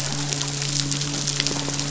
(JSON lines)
{"label": "biophony, midshipman", "recorder": "SoundTrap 500"}
{"label": "biophony", "recorder": "SoundTrap 500"}